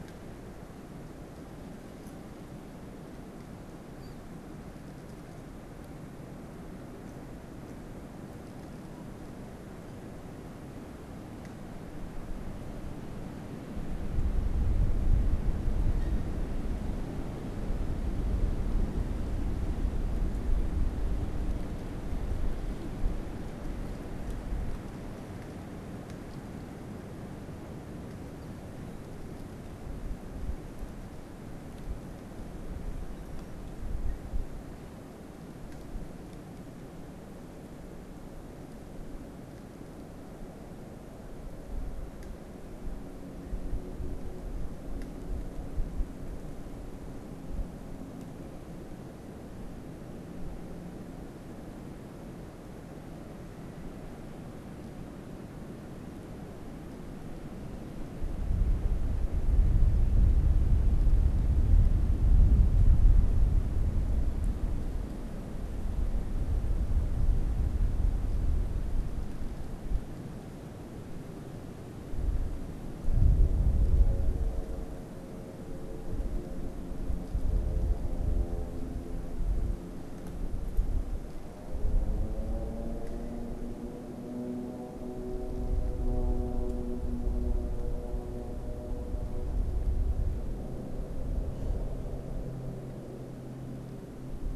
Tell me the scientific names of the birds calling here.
unidentified bird